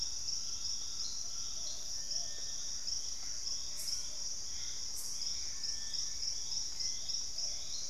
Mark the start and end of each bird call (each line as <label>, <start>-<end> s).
Plumbeous Pigeon (Patagioenas plumbea), 0.0-7.9 s
Collared Trogon (Trogon collaris), 0.2-1.9 s
Gray Antbird (Cercomacra cinerascens), 2.3-6.0 s
Purple-throated Fruitcrow (Querula purpurata), 2.7-6.4 s
Hauxwell's Thrush (Turdus hauxwelli), 2.9-7.9 s